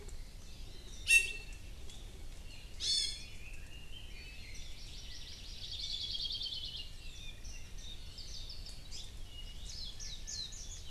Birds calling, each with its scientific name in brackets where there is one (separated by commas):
Hawaii Amakihi (Chlorodrepanis virens), Apapane (Himatione sanguinea), Warbling White-eye (Zosterops japonicus), Red-billed Leiothrix (Leiothrix lutea), Iiwi (Drepanis coccinea), Hawaii Creeper (Loxops mana)